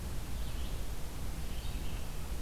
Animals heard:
Red-eyed Vireo (Vireo olivaceus)

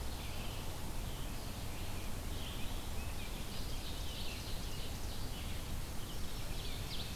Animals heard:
Red-eyed Vireo (Vireo olivaceus), Rose-breasted Grosbeak (Pheucticus ludovicianus), Ovenbird (Seiurus aurocapilla)

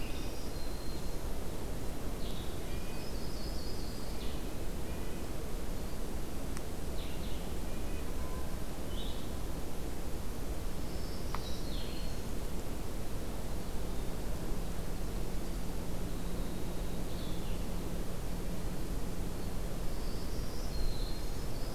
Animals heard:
Blue-headed Vireo (Vireo solitarius), Red-breasted Nuthatch (Sitta canadensis), Yellow-rumped Warbler (Setophaga coronata), Winter Wren (Troglodytes hiemalis), Black-throated Green Warbler (Setophaga virens)

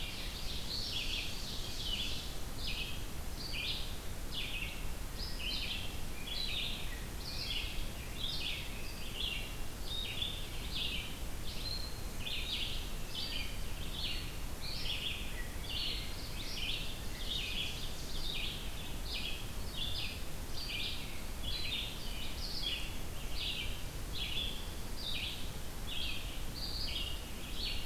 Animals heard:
Ovenbird (Seiurus aurocapilla), Red-eyed Vireo (Vireo olivaceus)

